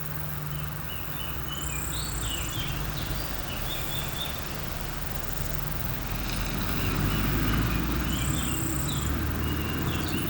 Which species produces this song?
Pholidoptera littoralis